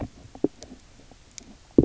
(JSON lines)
{"label": "biophony, stridulation", "recorder": "SoundTrap 300"}